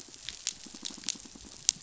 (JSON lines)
{"label": "biophony, pulse", "recorder": "SoundTrap 500"}